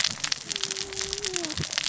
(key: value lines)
label: biophony, cascading saw
recorder: SoundTrap 600 or HydroMoth